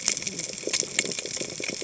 {"label": "biophony, cascading saw", "recorder": "HydroMoth"}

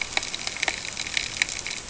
{"label": "ambient", "recorder": "HydroMoth"}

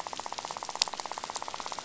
{"label": "biophony, rattle", "recorder": "SoundTrap 500"}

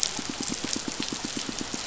{"label": "biophony, pulse", "recorder": "SoundTrap 500"}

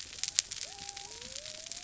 {"label": "biophony", "recorder": "SoundTrap 300"}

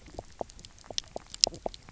{"label": "biophony, knock croak", "recorder": "SoundTrap 300"}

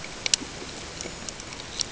{"label": "ambient", "recorder": "HydroMoth"}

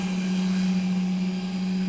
{"label": "anthrophony, boat engine", "recorder": "SoundTrap 500"}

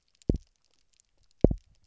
{"label": "biophony, double pulse", "recorder": "SoundTrap 300"}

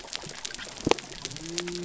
{"label": "biophony", "recorder": "SoundTrap 300"}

